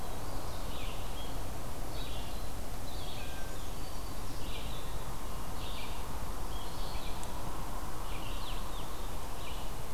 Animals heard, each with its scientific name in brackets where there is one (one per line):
Red-eyed Vireo (Vireo olivaceus)
Blue-headed Vireo (Vireo solitarius)
Black-throated Green Warbler (Setophaga virens)